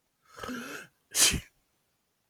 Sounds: Sneeze